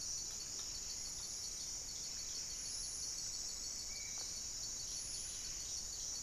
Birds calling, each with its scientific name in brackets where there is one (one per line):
unidentified bird
Buff-breasted Wren (Cantorchilus leucotis)
Horned Screamer (Anhima cornuta)
Spot-winged Antshrike (Pygiptila stellaris)